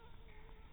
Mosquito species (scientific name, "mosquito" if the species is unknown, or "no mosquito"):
Anopheles dirus